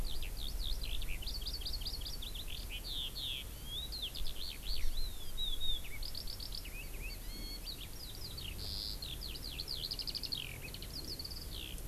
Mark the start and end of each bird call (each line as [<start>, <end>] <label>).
[0.00, 11.79] Eurasian Skylark (Alauda arvensis)